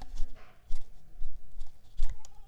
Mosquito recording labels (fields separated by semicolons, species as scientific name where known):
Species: Mansonia uniformis; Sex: female; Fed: unfed; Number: one; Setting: cup